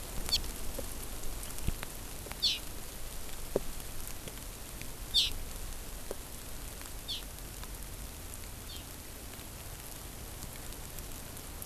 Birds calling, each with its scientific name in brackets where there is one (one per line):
Hawaii Amakihi (Chlorodrepanis virens)